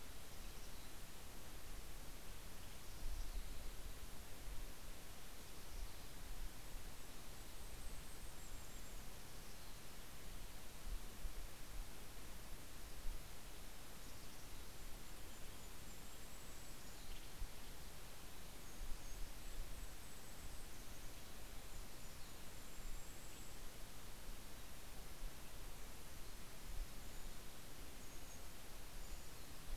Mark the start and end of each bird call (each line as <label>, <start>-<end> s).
Mountain Chickadee (Poecile gambeli), 0.1-1.2 s
Western Tanager (Piranga ludoviciana), 2.1-3.4 s
Mountain Chickadee (Poecile gambeli), 2.7-4.1 s
Mountain Chickadee (Poecile gambeli), 5.4-6.3 s
Golden-crowned Kinglet (Regulus satrapa), 6.5-9.6 s
Mountain Chickadee (Poecile gambeli), 6.9-7.8 s
Mountain Chickadee (Poecile gambeli), 9.2-10.2 s
Mountain Chickadee (Poecile gambeli), 13.9-15.3 s
Golden-crowned Kinglet (Regulus satrapa), 14.2-17.4 s
Mountain Chickadee (Poecile gambeli), 16.5-18.3 s
Western Tanager (Piranga ludoviciana), 16.8-18.3 s
Golden-crowned Kinglet (Regulus satrapa), 18.5-20.9 s
Mountain Chickadee (Poecile gambeli), 20.7-22.4 s
Golden-crowned Kinglet (Regulus satrapa), 21.5-23.8 s
Brown Creeper (Certhia americana), 26.6-29.7 s